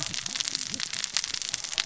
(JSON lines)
{"label": "biophony, cascading saw", "recorder": "SoundTrap 600 or HydroMoth"}